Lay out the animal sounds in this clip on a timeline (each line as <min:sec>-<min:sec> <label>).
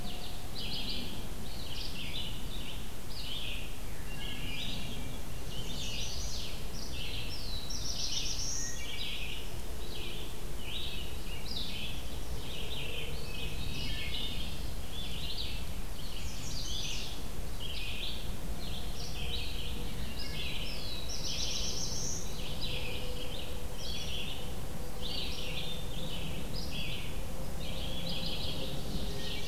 0:00.0-0:29.5 Red-eyed Vireo (Vireo olivaceus)
0:03.9-0:04.7 Wood Thrush (Hylocichla mustelina)
0:05.3-0:06.5 Chestnut-sided Warbler (Setophaga pensylvanica)
0:07.2-0:09.1 Black-throated Blue Warbler (Setophaga caerulescens)
0:08.4-0:09.3 Wood Thrush (Hylocichla mustelina)
0:13.3-0:14.7 Wood Thrush (Hylocichla mustelina)
0:15.9-0:17.3 Chestnut-sided Warbler (Setophaga pensylvanica)
0:19.9-0:20.8 Wood Thrush (Hylocichla mustelina)
0:20.5-0:22.4 Black-throated Blue Warbler (Setophaga caerulescens)
0:28.7-0:29.5 Ovenbird (Seiurus aurocapilla)